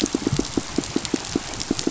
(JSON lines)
{"label": "biophony, pulse", "recorder": "SoundTrap 500"}